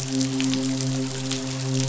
{"label": "biophony, midshipman", "recorder": "SoundTrap 500"}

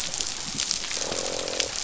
{"label": "biophony, croak", "recorder": "SoundTrap 500"}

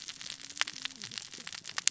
{"label": "biophony, cascading saw", "recorder": "SoundTrap 600 or HydroMoth"}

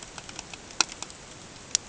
{"label": "ambient", "recorder": "HydroMoth"}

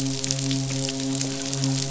{"label": "biophony, midshipman", "recorder": "SoundTrap 500"}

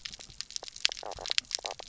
{"label": "biophony, knock croak", "recorder": "SoundTrap 300"}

